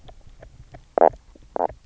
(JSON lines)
{"label": "biophony", "recorder": "SoundTrap 300"}